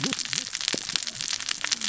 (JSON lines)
{"label": "biophony, cascading saw", "recorder": "SoundTrap 600 or HydroMoth"}